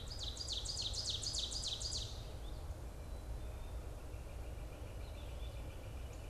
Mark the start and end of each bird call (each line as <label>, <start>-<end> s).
Ovenbird (Seiurus aurocapilla), 0.0-2.2 s
Purple Finch (Haemorhous purpureus), 2.0-2.6 s
Northern Flicker (Colaptes auratus), 3.2-6.3 s
Purple Finch (Haemorhous purpureus), 4.9-5.5 s
Northern Cardinal (Cardinalis cardinalis), 6.0-6.3 s